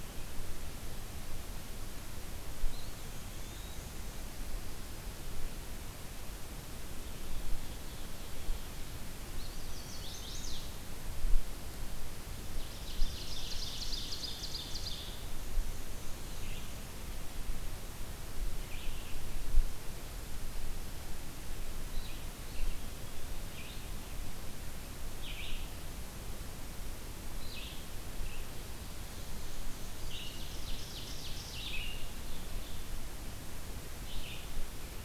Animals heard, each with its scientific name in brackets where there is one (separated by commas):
Eastern Wood-Pewee (Contopus virens), Red-eyed Vireo (Vireo olivaceus), Chestnut-sided Warbler (Setophaga pensylvanica), Ovenbird (Seiurus aurocapilla), Black-and-white Warbler (Mniotilta varia)